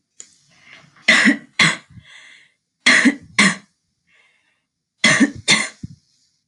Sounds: Cough